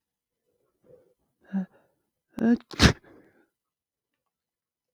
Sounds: Sneeze